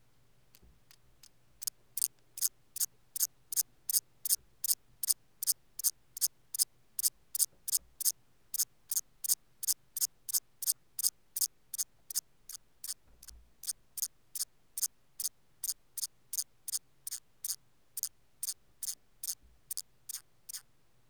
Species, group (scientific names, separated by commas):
Thyreonotus corsicus, Orthoptera